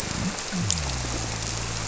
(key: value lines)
label: biophony
recorder: SoundTrap 300